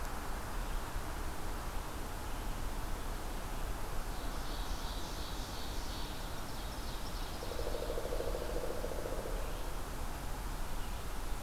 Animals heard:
Ovenbird (Seiurus aurocapilla)

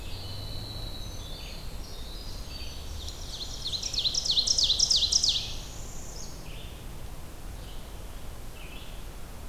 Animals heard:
Winter Wren (Troglodytes hiemalis), Red-eyed Vireo (Vireo olivaceus), Ovenbird (Seiurus aurocapilla), Northern Parula (Setophaga americana)

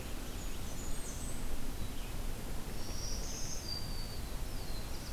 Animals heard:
Black-throated Blue Warbler (Setophaga caerulescens), Black-throated Green Warbler (Setophaga virens), Blackburnian Warbler (Setophaga fusca), Red-eyed Vireo (Vireo olivaceus)

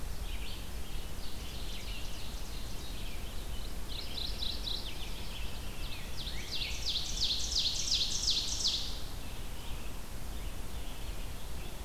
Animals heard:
Mourning Warbler (Geothlypis philadelphia), Ovenbird (Seiurus aurocapilla), Red-eyed Vireo (Vireo olivaceus), Rose-breasted Grosbeak (Pheucticus ludovicianus)

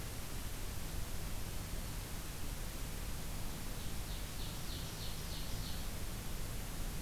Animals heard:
Ovenbird (Seiurus aurocapilla)

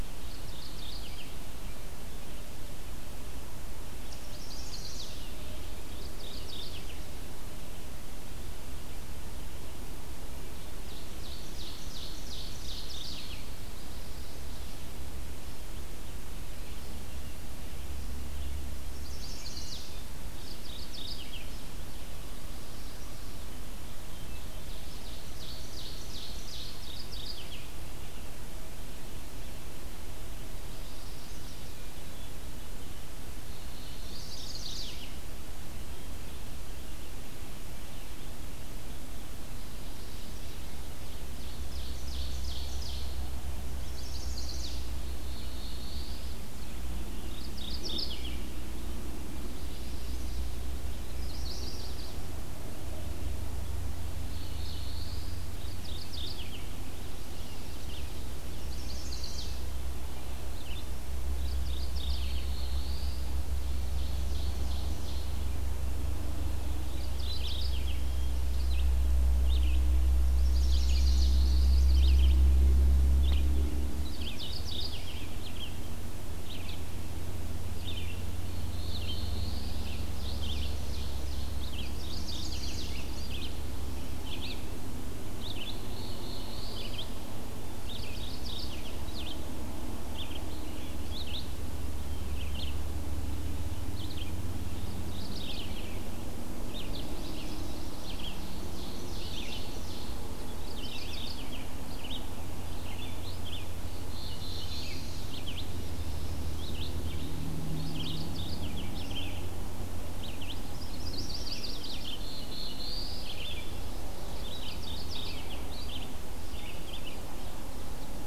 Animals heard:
Mourning Warbler (Geothlypis philadelphia), Red-eyed Vireo (Vireo olivaceus), Yellow-rumped Warbler (Setophaga coronata), Black-throated Blue Warbler (Setophaga caerulescens), Ovenbird (Seiurus aurocapilla), Chestnut-sided Warbler (Setophaga pensylvanica)

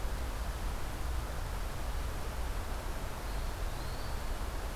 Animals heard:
Eastern Wood-Pewee (Contopus virens)

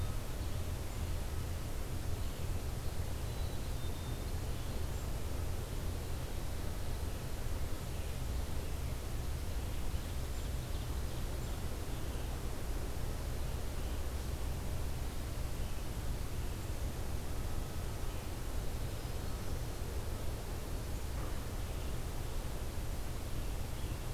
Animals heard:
Ovenbird (Seiurus aurocapilla), Black-capped Chickadee (Poecile atricapillus), Black-throated Green Warbler (Setophaga virens)

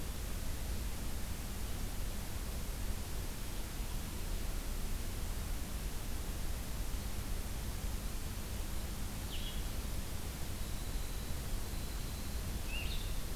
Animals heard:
Winter Wren (Troglodytes hiemalis), Blue-headed Vireo (Vireo solitarius)

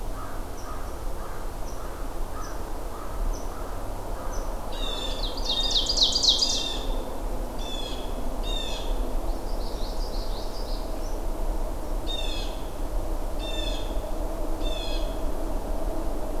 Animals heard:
Blue Jay (Cyanocitta cristata), American Crow (Corvus brachyrhynchos), Common Yellowthroat (Geothlypis trichas), Ovenbird (Seiurus aurocapilla)

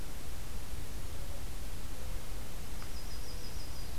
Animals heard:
Yellow-rumped Warbler (Setophaga coronata)

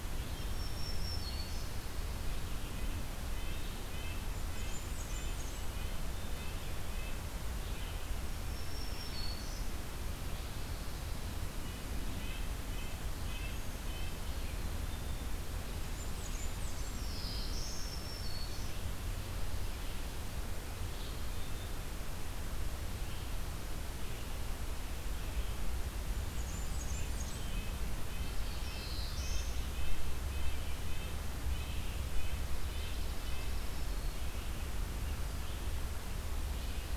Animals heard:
Red-breasted Nuthatch (Sitta canadensis), Blackburnian Warbler (Setophaga fusca), Black-throated Blue Warbler (Setophaga caerulescens), Red-eyed Vireo (Vireo olivaceus), Black-throated Green Warbler (Setophaga virens), Dark-eyed Junco (Junco hyemalis)

